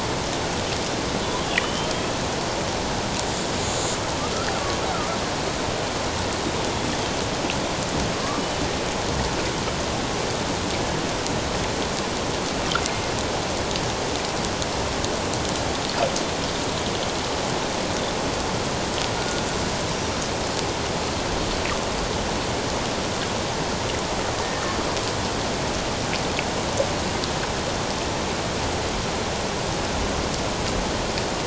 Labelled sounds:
1.4	2.1	killer whale, Bigg's (transient), 2.3 to 3.5 kHz
24.4	24.8	killer whale, Bigg's (transient), 1.7 to 1.9 kHz

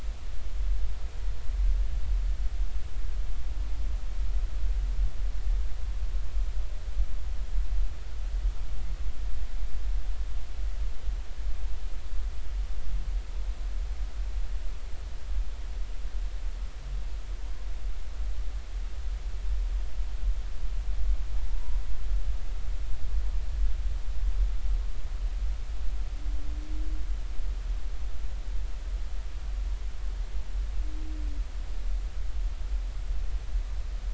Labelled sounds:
21.5	21.8	humpback whale, 0.86 to 1.0 kHz

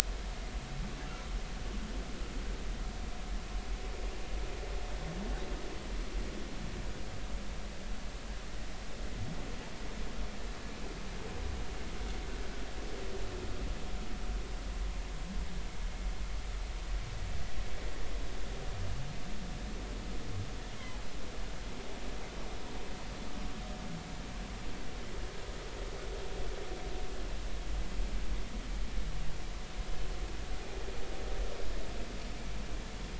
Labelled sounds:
20.8	21.0	humpback whale, 0.80 to 1.1 kHz

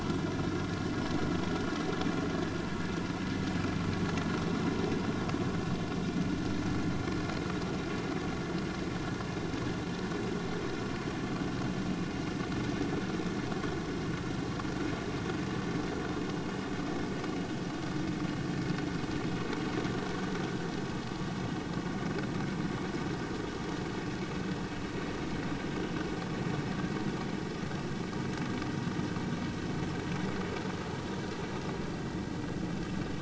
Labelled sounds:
4.4	4.6	vessel noise, 3.8 to 3.9 kHz

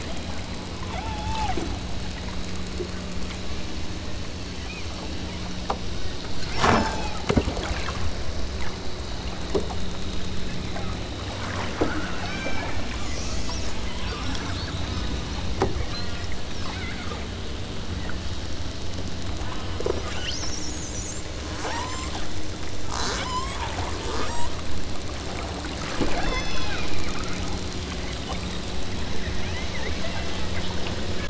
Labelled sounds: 0.0	0.4	killer whale, southern Alaska resident, 0.39 to 1.0 kHz
0.9	1.6	killer whale, southern Alaska resident, 0.34 to 3.0 kHz
6.8	7.2	killer whale, southern Alaska resident, 0.39 to 8.0 kHz
7.6	8.0	killer whale, southern Alaska resident, 0.99 to 3.1 kHz
10.4	11.0	killer whale, southern Alaska resident, 0.56 to 2.6 kHz
11.8	12.7	killer whale, southern Alaska resident, 0.81 to 7.1 kHz
14.0	15.5	killer whale, southern Alaska resident, 0.69 to 8.0 kHz
15.7	17.2	killer whale, southern Alaska resident, 0.64 to 4.6 kHz
19.4	21.2	killer whale, southern Alaska resident, 0.99 to 8.0 kHz
21.6	22.3	killer whale, southern Alaska resident, 0.51 to 8.0 kHz
22.8	23.6	killer whale, southern Alaska resident, 0.56 to 8.0 kHz
24.0	24.7	killer whale, southern Alaska resident, 0.51 to 8.0 kHz
26.2	26.8	killer whale, southern Alaska resident, 1.3 to 6.6 kHz
29.8	30.3	killer whale, southern Alaska resident, 0.56 to 2.0 kHz

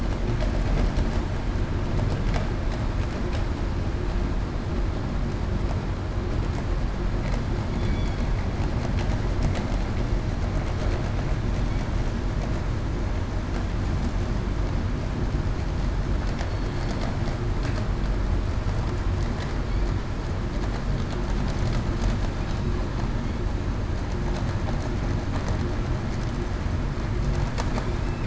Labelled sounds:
7.8	8.2	killer whale, southern resident, 3.3 to 3.5 kHz

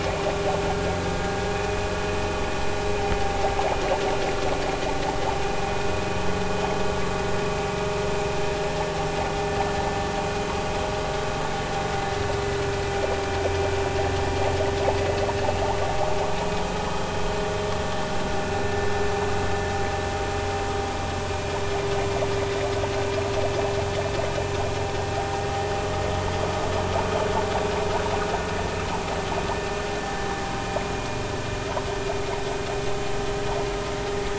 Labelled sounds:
1.5	1.9	vessel noise, 2.4 to 2.6 kHz

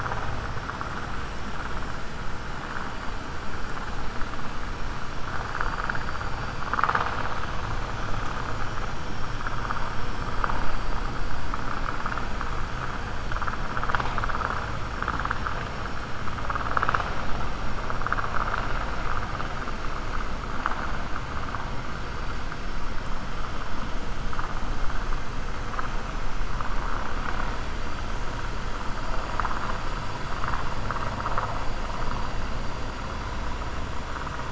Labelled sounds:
6.6	7.3	vessel noise, 0.50 to 5.9 kHz

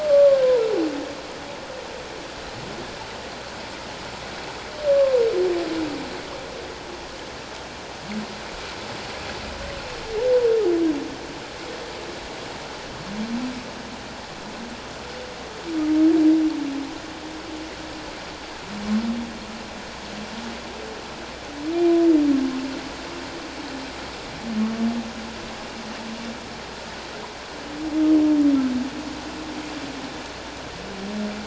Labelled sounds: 0.0	0.4	humpback whale, 1.0 to 1.2 kHz
4.9	5.2	humpback whale, 0.94 to 1.2 kHz

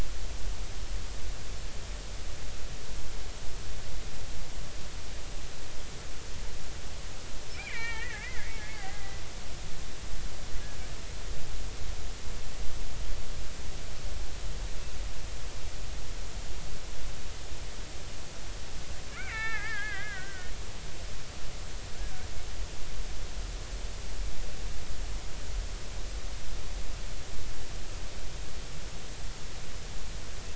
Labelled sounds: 7.5	9.2	killer whale, Bigg's (transient), 0.80 to 4.7 kHz
19.1	20.5	killer whale, Bigg's (transient), 0.80 to 4.1 kHz
22.0	22.3	killer whale, Bigg's (transient), 1.4 to 1.7 kHz

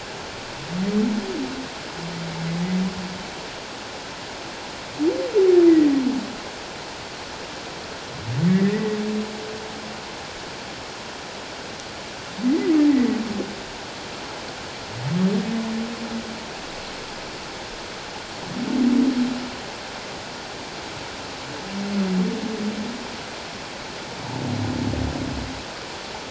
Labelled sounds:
8.5	9.0	humpback whale, 1.7 to 2.0 kHz

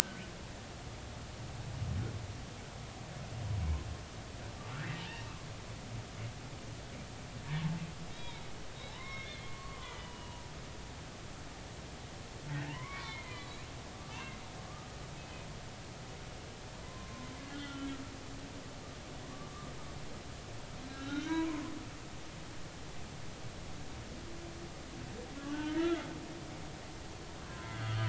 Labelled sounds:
0.0	0.3	humpback whale, 1.4 to 1.6 kHz
4.8	5.0	humpback whale, 1.6 to 2.1 kHz
8.1	8.4	humpback whale, 2.1 to 3.9 kHz
8.7	10.4	humpback whale, 0.80 to 4.1 kHz
12.7	13.6	humpback whale, 0.86 to 4.2 kHz
14.1	14.4	humpback whale, 2.6 to 2.9 kHz
15.2	15.5	humpback whale, 2.5 to 2.6 kHz
16.8	17.9	humpback whale, 0.99 to 3.2 kHz
19.3	19.7	humpback whale, 1.1 to 1.3 kHz
20.9	22.3	humpback whale, 0.90 to 4.0 kHz
25.5	26.0	humpback whale, 1.4 to 1.8 kHz
27.5	28.0	humpback whale, 0.90 to 3.4 kHz

